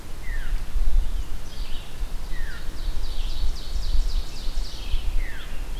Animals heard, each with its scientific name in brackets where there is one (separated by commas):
Ovenbird (Seiurus aurocapilla), Scarlet Tanager (Piranga olivacea), Red-eyed Vireo (Vireo olivaceus), Veery (Catharus fuscescens)